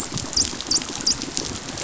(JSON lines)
{"label": "biophony, dolphin", "recorder": "SoundTrap 500"}